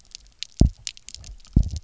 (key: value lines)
label: biophony, double pulse
recorder: SoundTrap 300